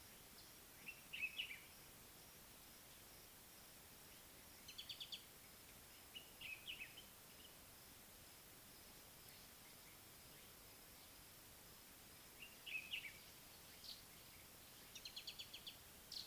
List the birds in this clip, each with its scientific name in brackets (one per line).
Mariqua Sunbird (Cinnyris mariquensis)
Common Bulbul (Pycnonotus barbatus)